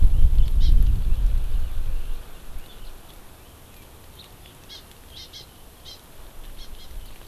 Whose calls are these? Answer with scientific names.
Chlorodrepanis virens, Haemorhous mexicanus